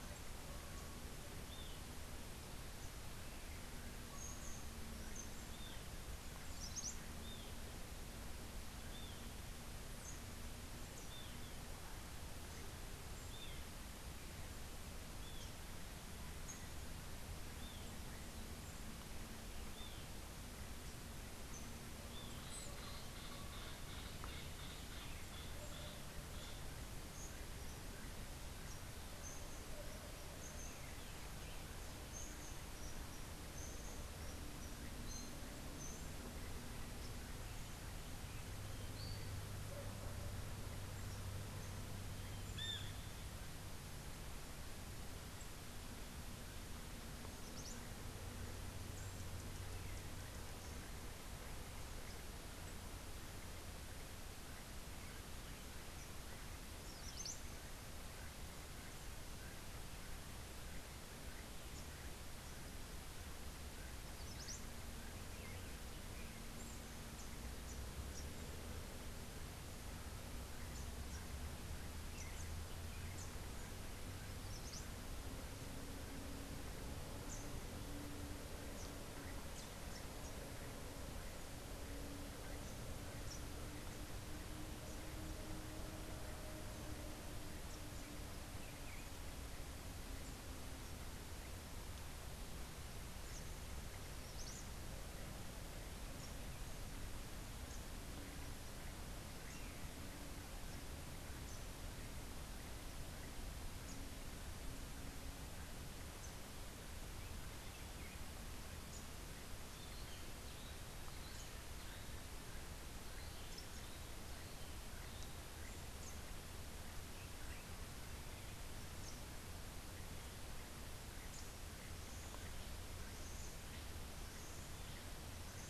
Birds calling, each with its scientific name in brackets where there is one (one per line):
Cabanis's Wren (Cantorchilus modestus)
Great Kiskadee (Pitangus sulphuratus)